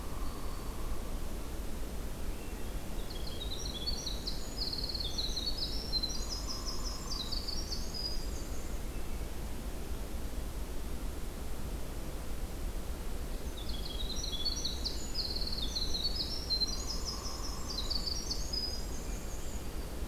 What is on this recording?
Hairy Woodpecker, Black-throated Green Warbler, Hermit Thrush, Winter Wren, Yellow-rumped Warbler